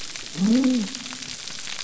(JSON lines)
{"label": "biophony", "recorder": "SoundTrap 300"}